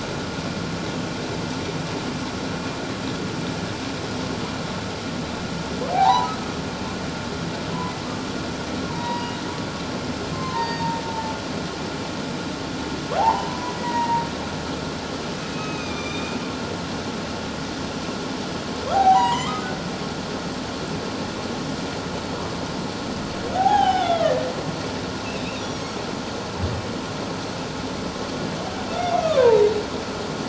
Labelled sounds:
5.9	6.3	humpback whale, 0.78 to 4.0 kHz
8.8	9.4	humpback whale, 0.88 to 4.8 kHz
10.3	11.3	humpback whale, 0.84 to 4.7 kHz
13.2	14.2	humpback whale, 0.78 to 2.0 kHz
15.5	16.4	humpback whale, 1.1 to 7.4 kHz
18.9	19.7	humpback whale, 0.78 to 7.4 kHz
22.3	22.6	humpback whale, 0.94 to 1.2 kHz
23.5	24.5	humpback whale, 0.78 to 3.8 kHz
28.9	29.8	humpback whale, 0.84 to 3.6 kHz

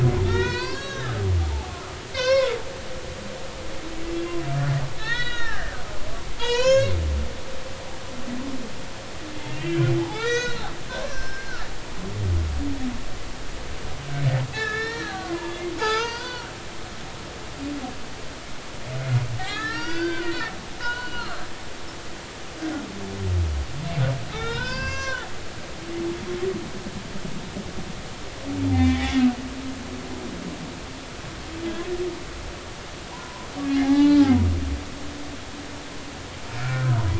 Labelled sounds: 0.1	1.1	humpback whale, 0.86 to 5.6 kHz
2.1	2.6	humpback whale, 0.90 to 6.0 kHz
4.1	5.7	humpback whale, 1.2 to 4.4 kHz
6.4	6.9	humpback whale, 0.86 to 7.2 kHz
9.5	11.6	humpback whale, 0.80 to 6.5 kHz
14.5	16.5	humpback whale, 0.80 to 6.2 kHz
19.4	20.5	humpback whale, 0.93 to 6.0 kHz
20.8	21.4	humpback whale, 1.1 to 4.4 kHz
24.3	25.3	humpback whale, 0.90 to 6.5 kHz
28.7	29.1	humpback whale, 1.8 to 2.4 kHz
33.7	34.3	humpback whale, 0.80 to 4.1 kHz
36.6	36.9	humpback whale, 1.3 to 1.6 kHz

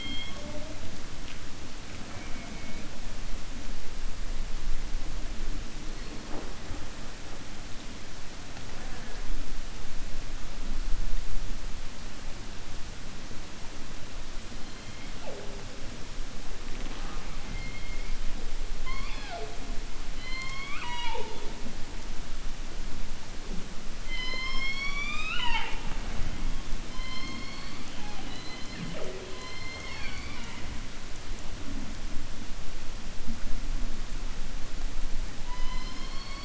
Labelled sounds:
20.1	21.5	killer whale, 0.42 to 7.8 kHz

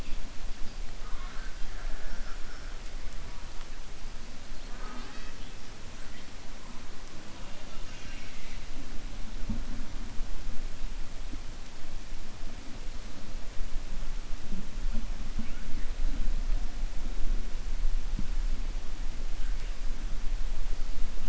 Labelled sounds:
0.9	1.6	killer whale, 0.74 to 2.2 kHz

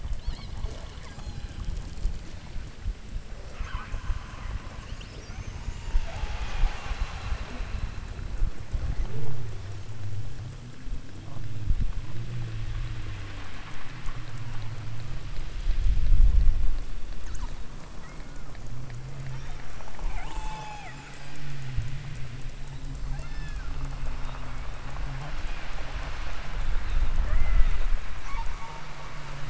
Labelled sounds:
0.2	0.6	killer whale, southern Alaska resident, 0.78 to 5.5 kHz
1.1	1.7	killer whale, southern Alaska resident, 0.64 to 8.0 kHz
3.5	4.1	killer whale, southern Alaska resident, 0.78 to 4.5 kHz
5.5	6.8	killer whale, southern Alaska resident, 0.52 to 5.7 kHz
17.9	18.6	killer whale, southern Alaska resident, 0.98 to 2.3 kHz
20.1	21.6	killer whale, southern Alaska resident, 0.52 to 8.0 kHz
23.1	23.7	killer whale, southern Alaska resident, 0.52 to 6.5 kHz
27.2	27.9	killer whale, southern Alaska resident, 0.46 to 2.3 kHz
28.2	29.4	killer whale, southern Alaska resident, 0.57 to 8.0 kHz

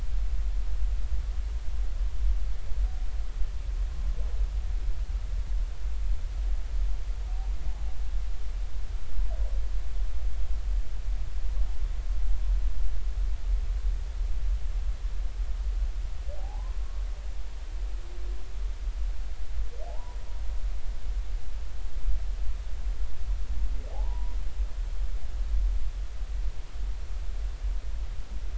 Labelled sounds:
7.7	7.9	humpback whale, 0.80 to 0.93 kHz
16.4	16.8	humpback whale, 0.80 to 1.1 kHz
19.9	20.2	humpback whale, 0.80 to 1.0 kHz
23.9	24.4	humpback whale, 0.80 to 1.1 kHz

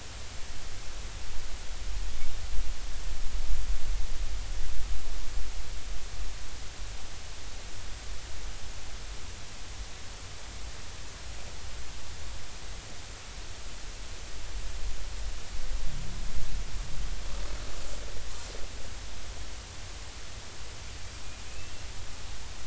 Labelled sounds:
20.9	21.7	killer whale, Bigg's (transient), 2.5 to 4.8 kHz

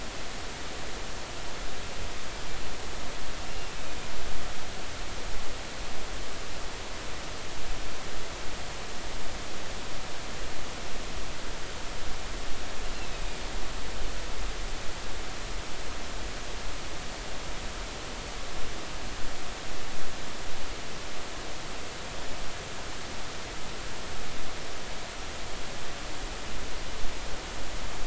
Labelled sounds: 3.5	3.8	killer whale, northern resident, A clan, AA subclan, A05 pod, call N04, 2.7 to 2.8 kHz
12.9	13.4	killer whale, northern resident, A clan, AA subclan, A05 pod, call N04, 2.4 to 2.8 kHz

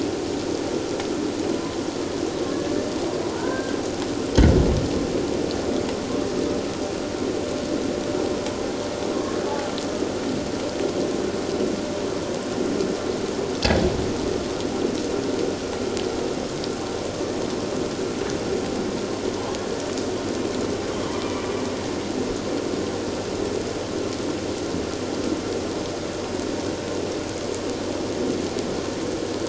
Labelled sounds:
1.5	1.8	killer whale, Bigg's (transient), 0.97 to 1.1 kHz
3.4	3.8	killer whale, Bigg's (transient), 1.4 to 1.7 kHz
9.1	9.4	killer whale, Bigg's (transient), 0.97 to 1.1 kHz

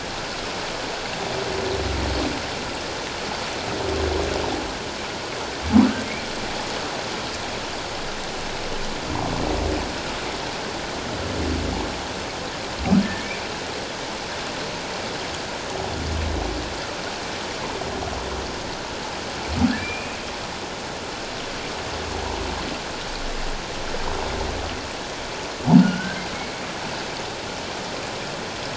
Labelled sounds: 19.8	20.2	humpback whale, 2.3 to 2.6 kHz
25.8	26.2	humpback whale, 1.3 to 1.7 kHz

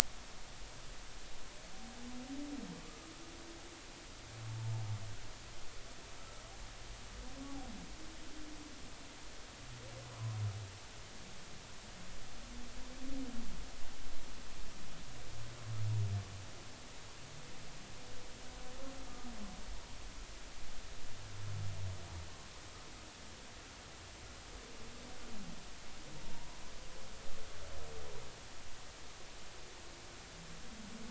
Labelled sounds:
26.2	26.6	humpback whale, 0.90 to 1.0 kHz

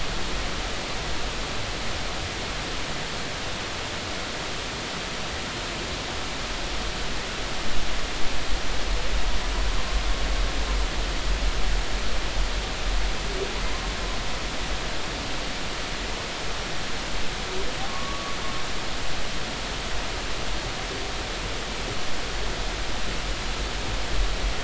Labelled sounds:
17.9	18.4	humpback whale, 1.1 to 1.2 kHz

